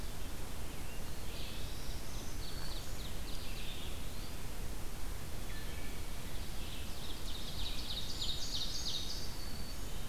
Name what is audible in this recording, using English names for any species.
Ovenbird, Black-throated Green Warbler, Eastern Wood-Pewee, Wood Thrush